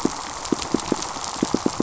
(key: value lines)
label: biophony, pulse
recorder: SoundTrap 500